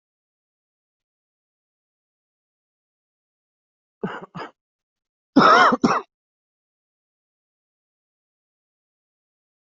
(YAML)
expert_labels:
- quality: good
  cough_type: wet
  dyspnea: false
  wheezing: false
  stridor: false
  choking: false
  congestion: false
  nothing: true
  diagnosis: lower respiratory tract infection
  severity: mild
age: 44
gender: male
respiratory_condition: false
fever_muscle_pain: false
status: healthy